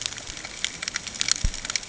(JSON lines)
{"label": "ambient", "recorder": "HydroMoth"}